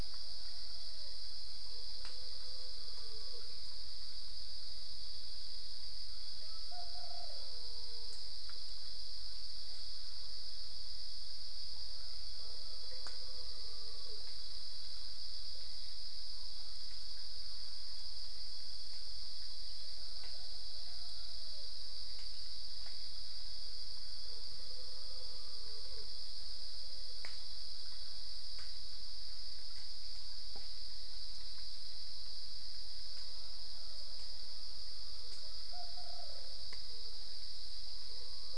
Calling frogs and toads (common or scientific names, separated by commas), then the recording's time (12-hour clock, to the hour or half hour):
none
4am